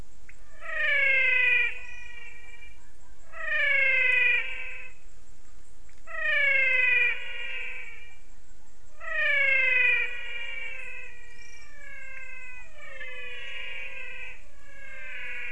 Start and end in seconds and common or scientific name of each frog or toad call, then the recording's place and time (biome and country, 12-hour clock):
0.0	15.5	menwig frog
0.2	0.4	pointedbelly frog
12.0	12.3	pointedbelly frog
Cerrado, Brazil, 5:45pm